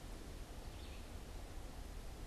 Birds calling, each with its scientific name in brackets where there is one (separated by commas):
Red-eyed Vireo (Vireo olivaceus)